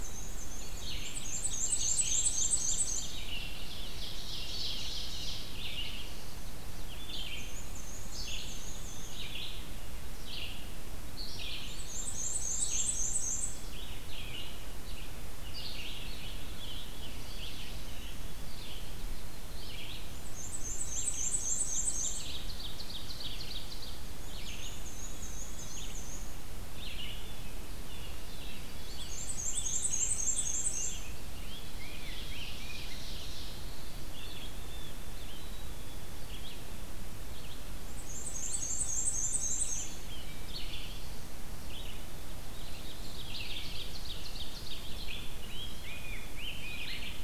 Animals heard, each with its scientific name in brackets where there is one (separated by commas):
Black-and-white Warbler (Mniotilta varia), Veery (Catharus fuscescens), Eastern Wood-Pewee (Contopus virens), Black-capped Chickadee (Poecile atricapillus), Rose-breasted Grosbeak (Pheucticus ludovicianus), Blue Jay (Cyanocitta cristata), Red-eyed Vireo (Vireo olivaceus), Scarlet Tanager (Piranga olivacea), Ovenbird (Seiurus aurocapilla)